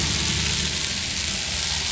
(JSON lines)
{"label": "anthrophony, boat engine", "recorder": "SoundTrap 500"}